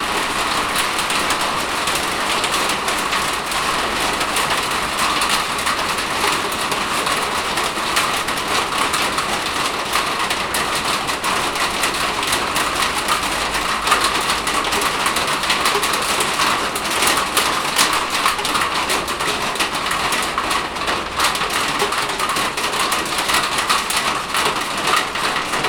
What device is turning over and over?
grinder